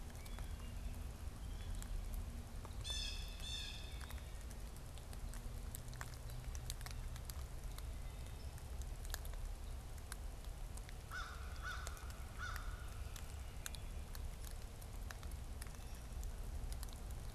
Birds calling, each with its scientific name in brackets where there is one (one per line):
Blue Jay (Cyanocitta cristata)
American Crow (Corvus brachyrhynchos)